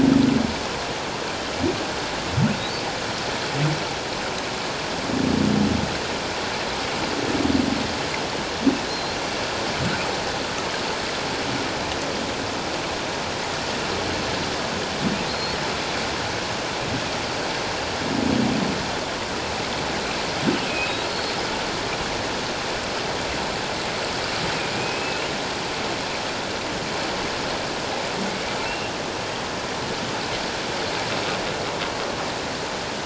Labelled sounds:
8.9	9.2	humpback whale, 4.0 to 4.3 kHz
15.3	15.6	humpback whale, 4.1 to 4.5 kHz
20.7	21.4	humpback whale, 2.4 to 4.4 kHz
24.8	25.2	humpback whale, 2.4 to 2.7 kHz
28.6	28.9	humpback whale, 2.6 to 2.8 kHz

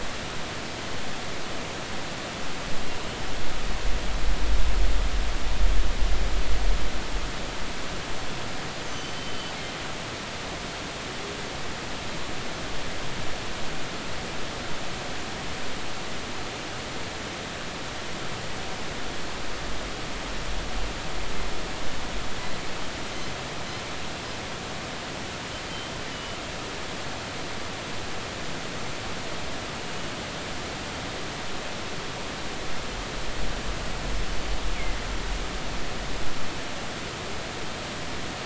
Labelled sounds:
8.9	9.5	killer whale, northern resident, G clan, GG subclan, call N23ii, 3.0 to 6.3 kHz
26.1	26.4	killer whale, northern resident, 2.9 to 3.1 kHz

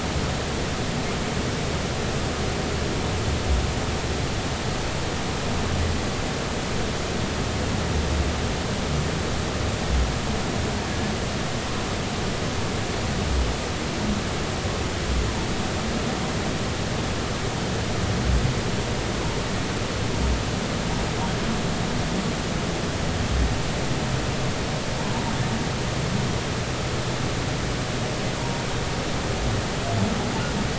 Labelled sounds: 28.4	28.6	humpback whale, 0.90 to 0.99 kHz

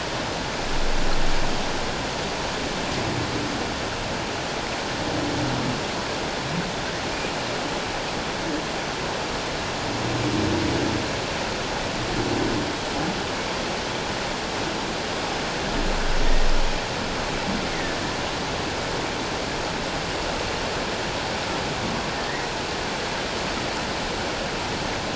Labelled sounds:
22.1	22.5	humpback whale, 1.7 to 2.2 kHz

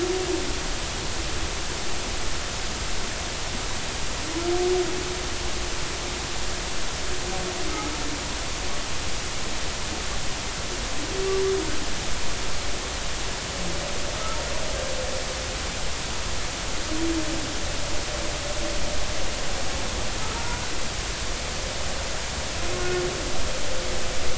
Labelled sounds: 20.3	20.6	humpback whale, 0.90 to 1.0 kHz

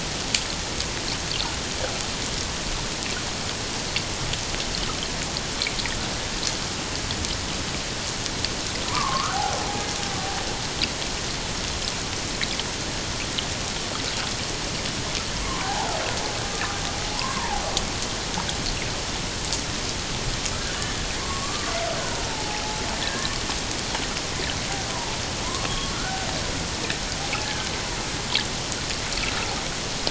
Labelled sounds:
8.9	9.6	killer whale, Bigg's (transient), 0.78 to 1.6 kHz
15.4	16.0	killer whale, Bigg's (transient), 0.78 to 1.2 kHz
17.1	17.6	killer whale, Bigg's (transient), 0.78 to 1.2 kHz
21.2	23.3	killer whale, Bigg's (transient), 0.78 to 1.8 kHz
24.9	26.3	killer whale, Bigg's (transient), 0.84 to 1.6 kHz
27.3	27.6	killer whale, Bigg's (transient), 0.81 to 0.91 kHz

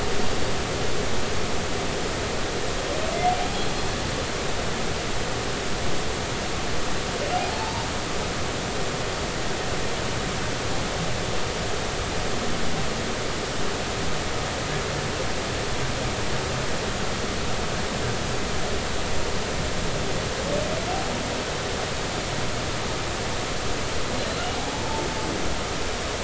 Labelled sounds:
7.5	7.9	humpback whale, 0.83 to 0.99 kHz

